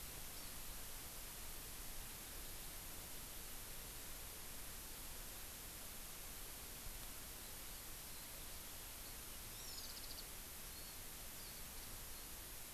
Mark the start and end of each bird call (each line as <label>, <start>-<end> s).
Hawaii Amakihi (Chlorodrepanis virens), 0.3-0.5 s
Eurasian Skylark (Alauda arvensis), 7.4-10.2 s
Hawaii Amakihi (Chlorodrepanis virens), 9.5-9.9 s
Warbling White-eye (Zosterops japonicus), 10.6-11.0 s
Hawaii Amakihi (Chlorodrepanis virens), 11.3-11.5 s